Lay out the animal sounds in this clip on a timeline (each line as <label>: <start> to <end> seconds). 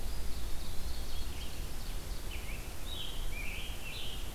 Red-eyed Vireo (Vireo olivaceus): 0.0 to 1.7 seconds
Eastern Wood-Pewee (Contopus virens): 0.0 to 1.1 seconds
Ovenbird (Seiurus aurocapilla): 0.0 to 2.5 seconds
Scarlet Tanager (Piranga olivacea): 2.2 to 4.3 seconds